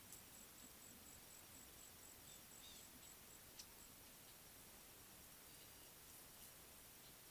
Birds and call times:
Eastern Violet-backed Sunbird (Anthreptes orientalis): 2.7s

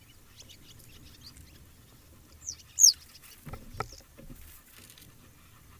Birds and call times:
Western Yellow Wagtail (Motacilla flava): 2.8s

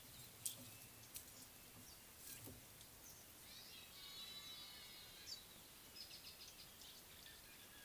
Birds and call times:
Speckled Mousebird (Colius striatus): 6.4s

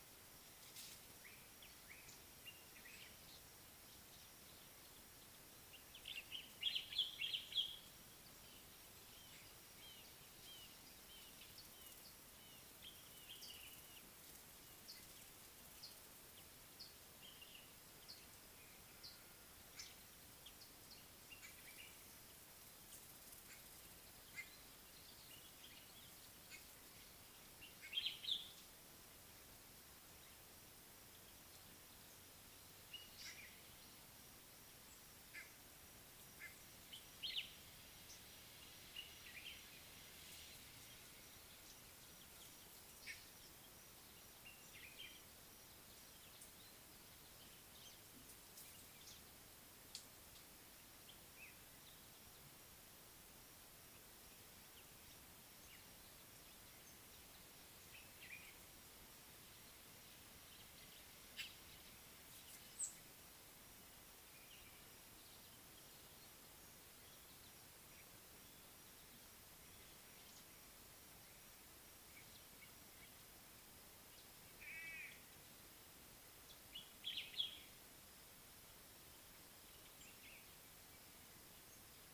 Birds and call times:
Common Bulbul (Pycnonotus barbatus): 6.8s, 27.9s, 37.2s, 44.7s, 58.2s, 77.1s
Red-fronted Barbet (Tricholaema diademata): 11.7s
Mariqua Sunbird (Cinnyris mariquensis): 14.8s
Scarlet-chested Sunbird (Chalcomitra senegalensis): 20.3s
White-bellied Go-away-bird (Corythaixoides leucogaster): 35.3s, 43.0s, 61.3s, 74.7s

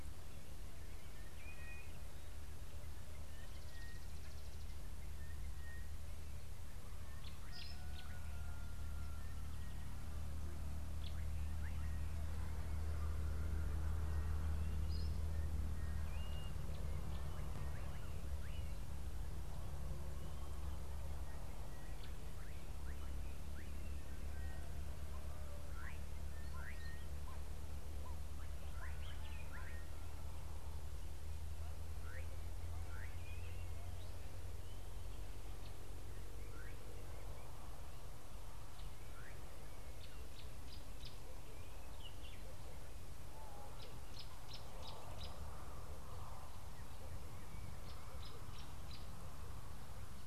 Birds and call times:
Sulphur-breasted Bushshrike (Telophorus sulfureopectus): 3.8s, 15.4s, 26.9s
Gray-backed Camaroptera (Camaroptera brevicaudata): 7.3s, 44.6s
Meyer's Parrot (Poicephalus meyeri): 7.7s
Slate-colored Boubou (Laniarius funebris): 25.9s, 32.2s
Southern Fiscal (Lanius collaris): 47.5s

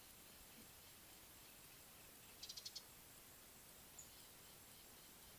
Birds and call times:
Beautiful Sunbird (Cinnyris pulchellus): 2.6s
Mouse-colored Penduline-Tit (Anthoscopus musculus): 4.0s

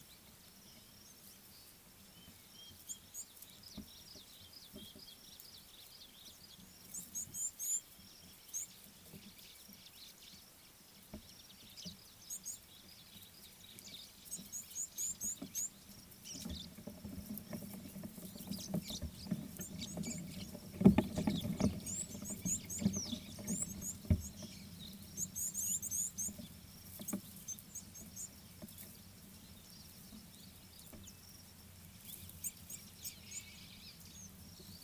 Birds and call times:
Gabar Goshawk (Micronisus gabar): 2.6s
Red-faced Crombec (Sylvietta whytii): 4.6s
Red-cheeked Cordonbleu (Uraeginthus bengalus): 7.4s, 15.0s, 22.5s, 25.7s, 32.7s
Fischer's Lovebird (Agapornis fischeri): 16.3s, 18.9s

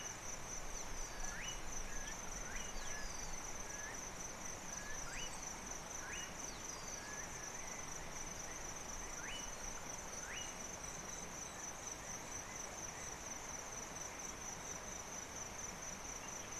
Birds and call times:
Slate-colored Boubou (Laniarius funebris): 1.4s, 6.2s, 9.4s
Rufous Chatterer (Argya rubiginosa): 3.1s, 5.4s

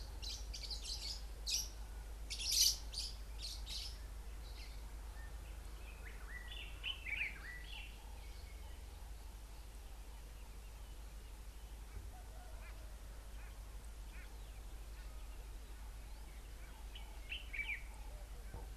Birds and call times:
Fischer's Lovebird (Agapornis fischeri): 0.2s, 2.4s
Common Bulbul (Pycnonotus barbatus): 7.1s, 17.3s
White-bellied Go-away-bird (Corythaixoides leucogaster): 14.2s

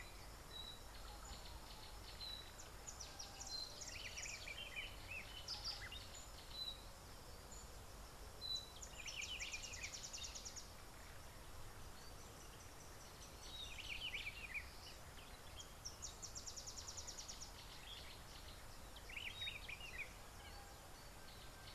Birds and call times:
Variable Sunbird (Cinnyris venustus): 10.0s

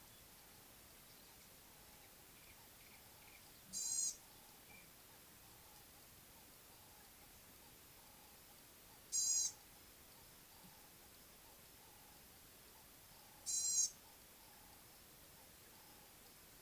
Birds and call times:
Ring-necked Dove (Streptopelia capicola): 4.5s, 10.6s
Gray-backed Camaroptera (Camaroptera brevicaudata): 9.4s

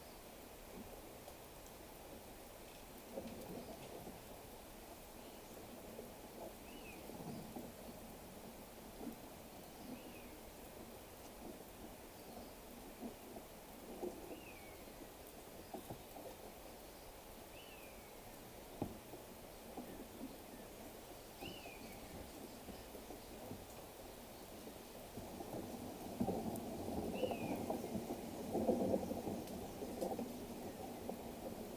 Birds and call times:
Common Buzzard (Buteo buteo): 21.6s

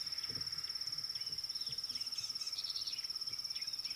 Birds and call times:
Rattling Cisticola (Cisticola chiniana): 2.7s

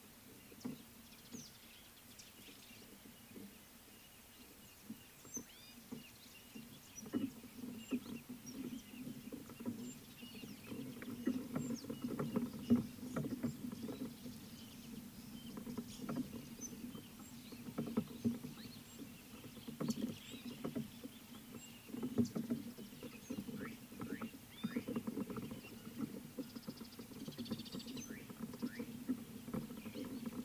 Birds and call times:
Gray-backed Camaroptera (Camaroptera brevicaudata): 5.6s
Crested Francolin (Ortygornis sephaena): 10.3s
Slate-colored Boubou (Laniarius funebris): 24.2s
Mariqua Sunbird (Cinnyris mariquensis): 27.4s

